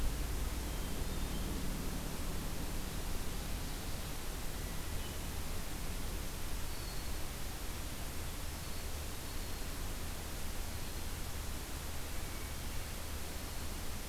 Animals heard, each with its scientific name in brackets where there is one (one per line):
Hermit Thrush (Catharus guttatus)